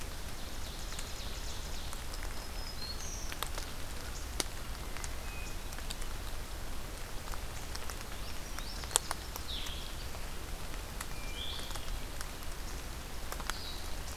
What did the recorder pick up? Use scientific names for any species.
Seiurus aurocapilla, Setophaga virens, Catharus guttatus, Passerina cyanea, Vireo solitarius